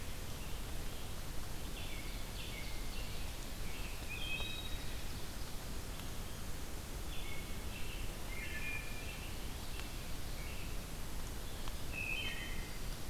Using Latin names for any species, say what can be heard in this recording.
Turdus migratorius, Seiurus aurocapilla, Hylocichla mustelina